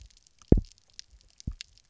{"label": "biophony, double pulse", "recorder": "SoundTrap 300"}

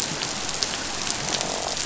{"label": "biophony, croak", "recorder": "SoundTrap 500"}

